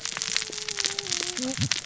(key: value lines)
label: biophony, cascading saw
recorder: SoundTrap 600 or HydroMoth